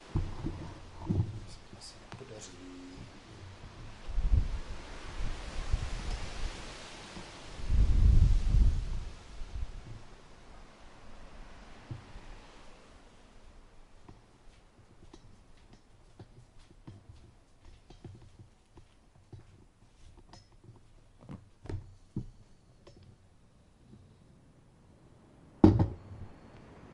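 Quiet footsteps. 0:00.1 - 0:01.6
A man is whispering. 0:01.7 - 0:03.2
Wind blows against the microphone. 0:04.1 - 0:06.5
Wind blows against the microphone. 0:07.6 - 0:09.3
Quiet footsteps. 0:11.9 - 0:22.3
A firm knock. 0:25.6 - 0:26.0

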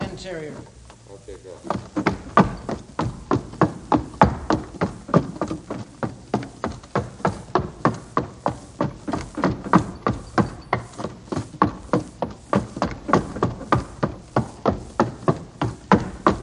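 A man is speaking in a muffled voice. 0:00.0 - 0:00.6
A man is speaking in a radio-like voice. 0:01.1 - 0:01.6
Footsteps of a person walking quickly indoors. 0:01.6 - 0:16.4

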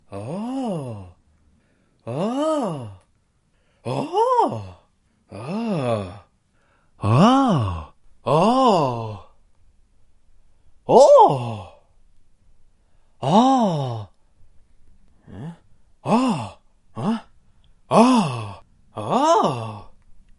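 A man speaks in an ordinary tone. 0:00.1 - 0:01.2
A man expresses wonder. 0:02.1 - 0:03.1
A man speaks in surprise. 0:03.9 - 0:04.8
A man speaks in an ordinary tone. 0:05.3 - 0:06.3
A man expresses wonder. 0:07.0 - 0:09.3
A man speaks in surprise. 0:10.9 - 0:11.7
A man expresses wonder. 0:13.2 - 0:14.1
A man says something in an ordinary way. 0:15.3 - 0:15.6
A man speaks in surprise. 0:16.0 - 0:16.7
A man expresses surprise. 0:17.0 - 0:17.2
A man expresses wonder. 0:17.9 - 0:18.7
A man speaks in surprise. 0:18.9 - 0:19.9

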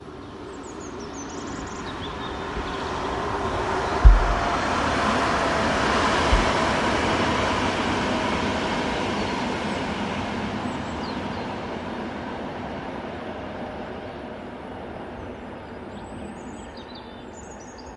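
A metallic glide of a passing train cuts through persistent birdsong, creating an urban-nature contrast. 0:00.3 - 0:18.0

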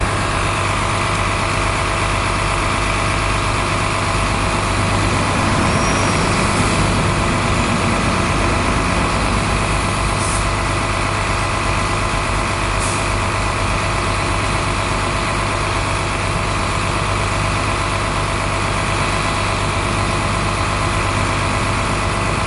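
A bus engine hums continuously and rumbles steadily. 0:00.1 - 0:22.5

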